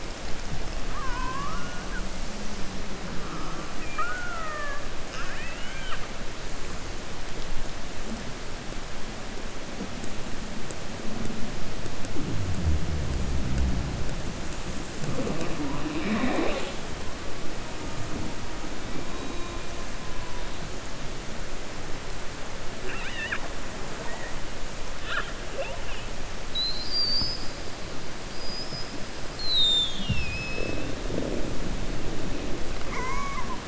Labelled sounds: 3.7	6.0	killer whale, 0.58 to 3.7 kHz
22.8	23.5	killer whale, 0.70 to 3.8 kHz
28.3	28.9	killer whale, 4.8 to 5.4 kHz

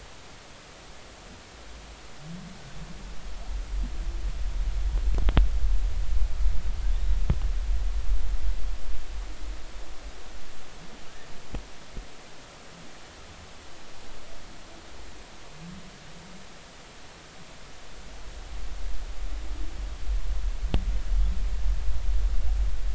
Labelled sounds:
6.9	7.2	humpback whale, 3.4 to 3.9 kHz

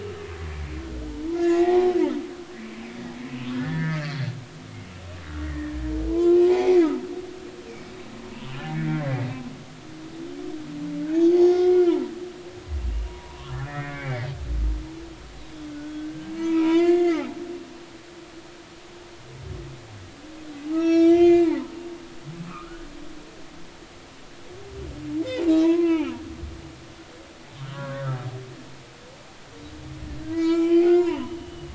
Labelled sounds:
1.3	2.0	humpback whale, 0.80 to 2.8 kHz
3.5	4.4	humpback whale, 1.2 to 4.7 kHz
5.4	5.7	humpback whale, 1.7 to 2.0 kHz
6.1	6.9	humpback whale, 0.80 to 2.6 kHz
7.7	7.9	humpback whale, 2.1 to 2.5 kHz
8.5	9.3	humpback whale, 1.5 to 3.1 kHz
11.4	12.1	humpback whale, 1.2 to 3.7 kHz
13.1	14.3	humpback whale, 0.90 to 2.5 kHz
15.7	17.3	humpback whale, 0.90 to 4.5 kHz
20.7	21.7	humpback whale, 0.83 to 6.8 kHz
22.5	22.9	humpback whale, 1.0 to 1.6 kHz
25.6	26.1	humpback whale, 0.83 to 3.1 kHz
27.7	28.1	humpback whale, 0.93 to 1.7 kHz
30.2	31.7	humpback whale, 0.83 to 5.4 kHz

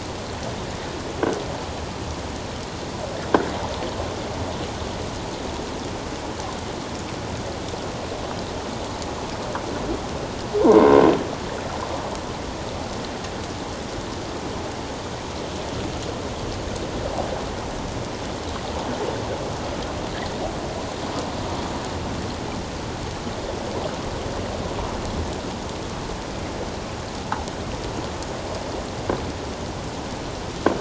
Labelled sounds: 10.6	11.0	croaking sound likely from a nearby submerged object, 0.88 to 1.1 kHz

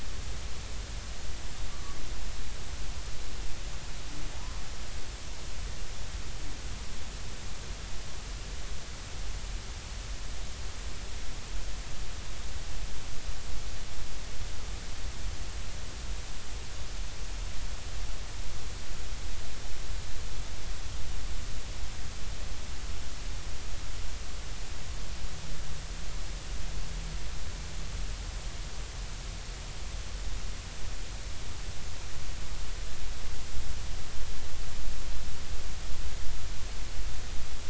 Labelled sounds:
2.7	3.0	humpback whale, 1.1 to 1.3 kHz
4.4	4.6	humpback whale, 0.90 to 1.1 kHz

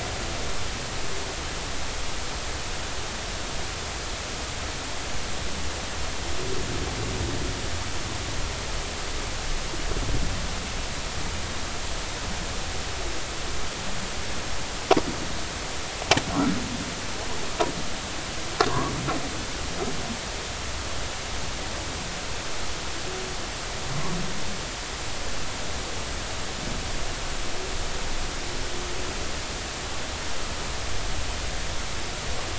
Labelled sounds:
18.7	18.9	humpback whale, 0.93 to 1.2 kHz

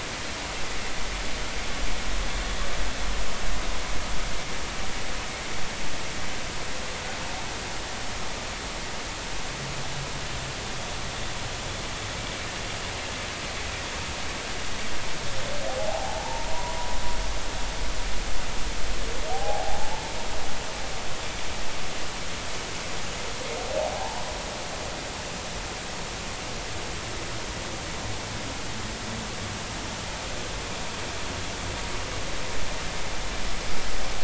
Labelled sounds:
15.8	16.8	humpback whale, 0.80 to 1.2 kHz
19.3	19.8	humpback whale, 0.80 to 0.90 kHz
23.8	24.2	humpback whale, 0.80 to 1.0 kHz

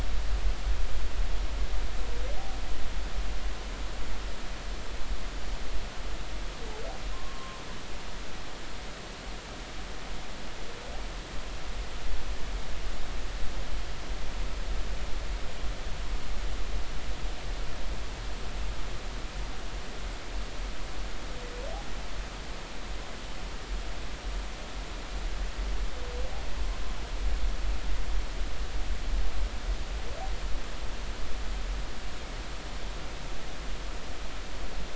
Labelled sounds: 7.1	7.6	humpback whale, 0.99 to 1.2 kHz

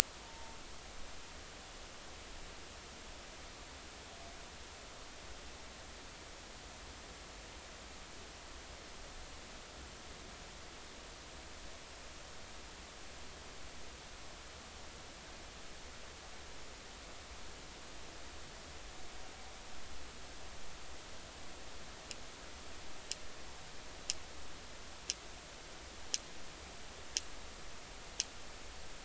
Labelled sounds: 0.2	0.6	humpback whale, 0.86 to 0.96 kHz

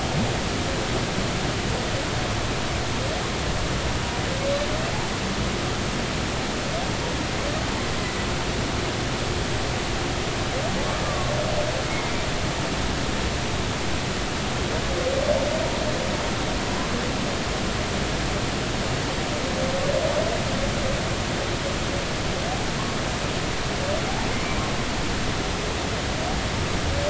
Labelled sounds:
11.0	12.1	humpback whale, 1.0 to 2.2 kHz

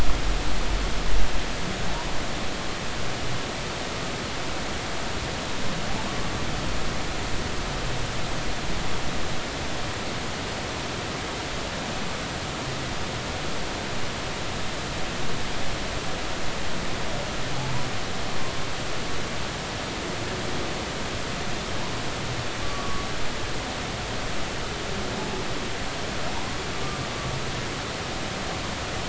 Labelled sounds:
22.6	23.1	humpback whale, 1.1 to 1.2 kHz
26.4	26.6	humpback whale, 0.83 to 1.2 kHz

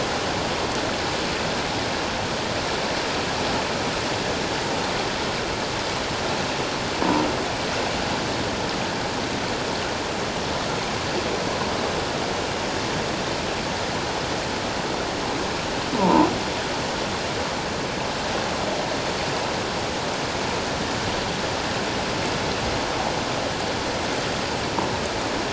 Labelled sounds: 16.0	16.3	croaking sound likely from a nearby submerged object, 0.84 to 1.1 kHz

